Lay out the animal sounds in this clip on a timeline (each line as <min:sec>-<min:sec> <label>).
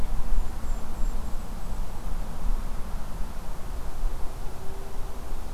0:00.3-0:01.9 Golden-crowned Kinglet (Regulus satrapa)